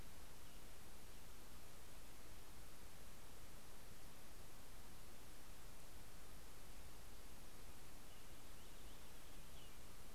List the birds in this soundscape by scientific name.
Haemorhous purpureus